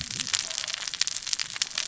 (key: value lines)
label: biophony, cascading saw
recorder: SoundTrap 600 or HydroMoth